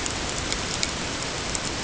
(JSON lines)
{"label": "ambient", "recorder": "HydroMoth"}